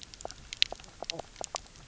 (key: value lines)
label: biophony, knock croak
recorder: SoundTrap 300